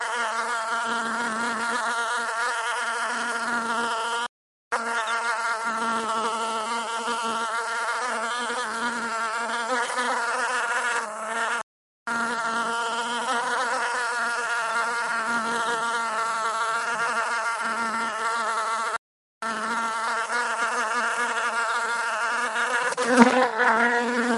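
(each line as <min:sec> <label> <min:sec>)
0:00.0 A fly buzzing nearby in a steady pattern with short pauses in between. 0:24.4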